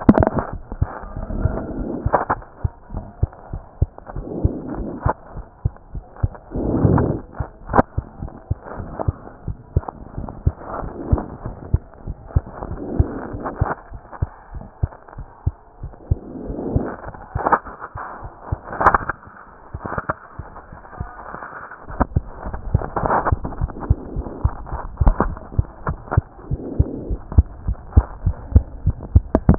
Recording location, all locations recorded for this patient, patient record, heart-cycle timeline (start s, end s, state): mitral valve (MV)
aortic valve (AV)+pulmonary valve (PV)+tricuspid valve (TV)+mitral valve (MV)
#Age: Child
#Sex: Female
#Height: 103.0 cm
#Weight: 14.0 kg
#Pregnancy status: False
#Murmur: Absent
#Murmur locations: nan
#Most audible location: nan
#Systolic murmur timing: nan
#Systolic murmur shape: nan
#Systolic murmur grading: nan
#Systolic murmur pitch: nan
#Systolic murmur quality: nan
#Diastolic murmur timing: nan
#Diastolic murmur shape: nan
#Diastolic murmur grading: nan
#Diastolic murmur pitch: nan
#Diastolic murmur quality: nan
#Outcome: Abnormal
#Campaign: 2014 screening campaign
0.00	25.86	unannotated
25.86	25.95	S1
25.95	26.16	systole
26.16	26.22	S2
26.22	26.51	diastole
26.51	26.60	S1
26.60	26.78	systole
26.78	26.84	S2
26.84	27.10	diastole
27.10	27.18	S1
27.18	27.36	systole
27.36	27.43	S2
27.43	27.67	diastole
27.67	27.77	S1
27.77	27.96	systole
27.96	28.03	S2
28.03	28.25	diastole
28.25	28.36	S1
28.36	28.54	systole
28.54	28.60	S2
28.60	28.86	diastole
28.86	28.95	S1
28.95	29.15	systole
29.15	29.22	S2
29.22	29.48	diastole
29.48	29.58	unannotated